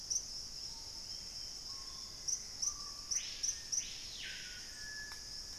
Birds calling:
Black-faced Antthrush (Formicarius analis), Hauxwell's Thrush (Turdus hauxwelli), Gray Antbird (Cercomacra cinerascens), Screaming Piha (Lipaugus vociferans)

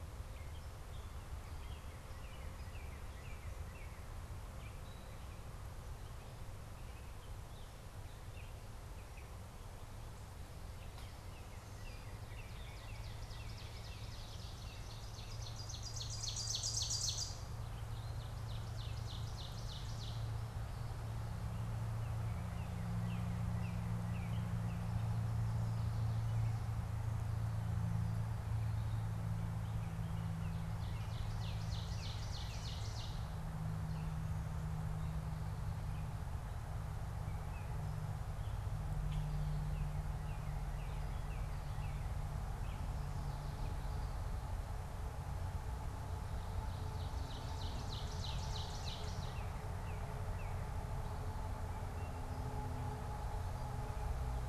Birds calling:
Northern Cardinal (Cardinalis cardinalis), Ovenbird (Seiurus aurocapilla), Gray Catbird (Dumetella carolinensis)

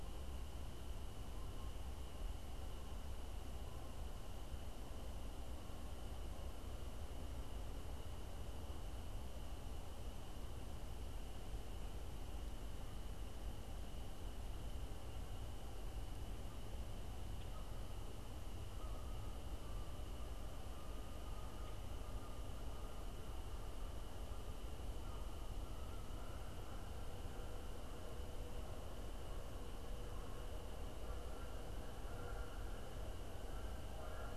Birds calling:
Canada Goose (Branta canadensis)

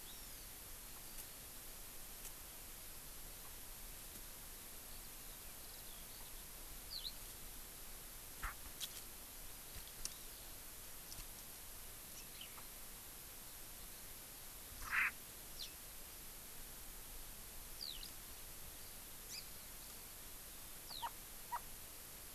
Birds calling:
Hawaii Amakihi (Chlorodrepanis virens), Erckel's Francolin (Pternistis erckelii), Japanese Bush Warbler (Horornis diphone), Eurasian Skylark (Alauda arvensis), Chinese Hwamei (Garrulax canorus)

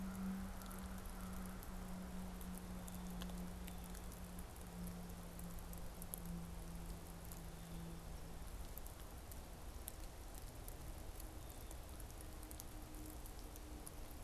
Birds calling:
American Crow (Corvus brachyrhynchos)

